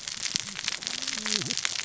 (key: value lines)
label: biophony, cascading saw
recorder: SoundTrap 600 or HydroMoth